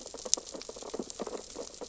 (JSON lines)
{"label": "biophony, sea urchins (Echinidae)", "recorder": "SoundTrap 600 or HydroMoth"}